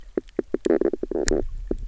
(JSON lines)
{"label": "biophony, knock croak", "recorder": "SoundTrap 300"}